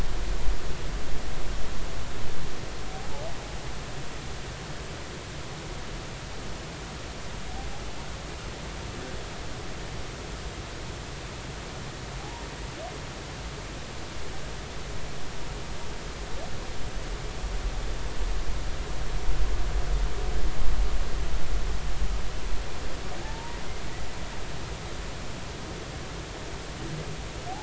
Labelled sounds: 12.2	12.5	humpback whale, 0.80 to 1.0 kHz
23.2	23.6	humpback whale, 0.83 to 0.99 kHz

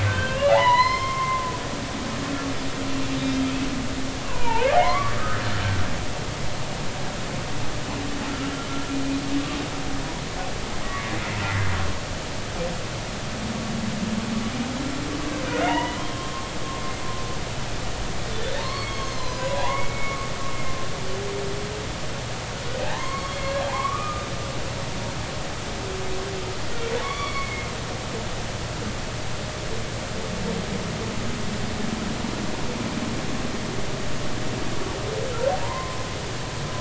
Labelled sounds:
0.0	1.4	humpback whale, 0.80 to 5.4 kHz
4.2	5.4	humpback whale, 0.83 to 2.6 kHz
15.5	16.5	humpback whale, 0.80 to 3.0 kHz
18.6	20.3	humpback whale, 0.80 to 5.1 kHz
22.8	23.3	humpback whale, 0.80 to 2.2 kHz
23.6	24.3	humpback whale, 0.80 to 1.3 kHz
27.0	27.7	humpback whale, 0.99 to 4.7 kHz
35.6	36.0	humpback whale, 0.90 to 2.2 kHz

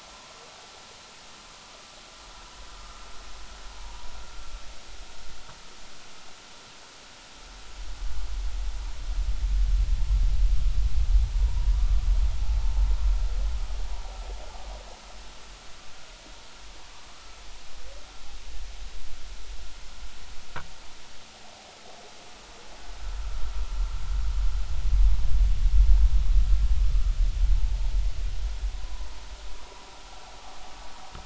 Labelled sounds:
2.8	3.0	vessel noise, 1.2 to 1.4 kHz
3.8	4.1	vessel noise, 0.83 to 0.99 kHz
11.5	12.1	vessel noise, 0.90 to 1.2 kHz
28.7	29.1	vessel noise, 0.93 to 1.1 kHz

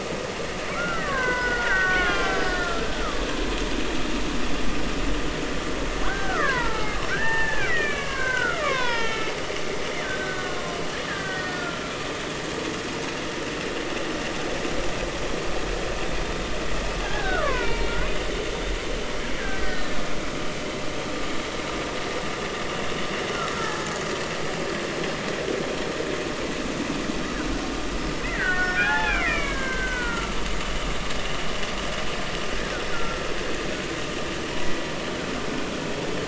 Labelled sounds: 0.7	2.9	killer whale, Bigg's (transient), 0.93 to 5.4 kHz
3.3	3.6	killer whale, Bigg's (transient), 4.6 to 5.0 kHz
6.0	9.3	killer whale, Bigg's (transient), 0.80 to 4.2 kHz
10.0	11.9	killer whale, Bigg's (transient), 1.3 to 4.1 kHz
17.0	18.0	killer whale, Bigg's (transient), 0.86 to 2.6 kHz
19.6	20.0	killer whale, Bigg's (transient), 1.7 to 4.1 kHz
23.6	24.0	killer whale, Bigg's (transient), 0.80 to 0.90 kHz
28.2	30.4	killer whale, Bigg's (transient), 0.80 to 3.6 kHz
32.9	33.2	killer whale, Bigg's (transient), 1.3 to 1.5 kHz

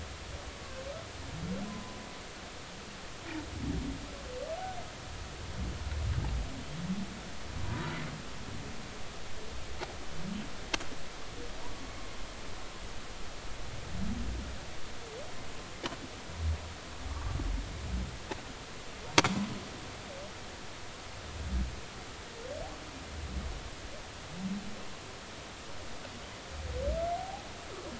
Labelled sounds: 1.7	2.0	humpback whale, 0.96 to 1.1 kHz
7.6	7.9	humpback whale, 0.93 to 1.0 kHz
11.9	12.2	humpback whale, 2.1 to 2.2 kHz
17.1	17.4	humpback whale, 1.1 to 1.2 kHz
27.2	27.5	humpback whale, 0.80 to 0.86 kHz

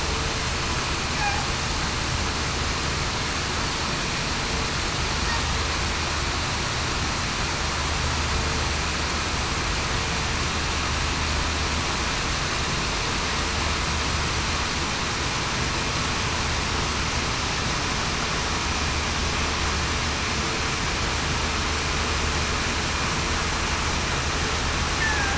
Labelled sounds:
25.0	25.3	killer whale, southern resident, 1.5 to 1.8 kHz

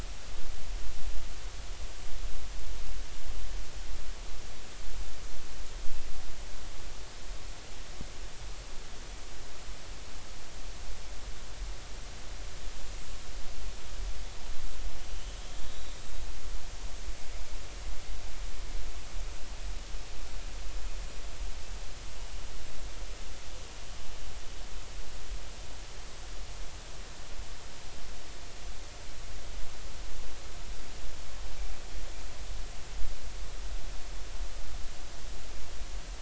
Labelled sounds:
15.7	16.0	small unidentified odontocete, 3.7 to 4.0 kHz

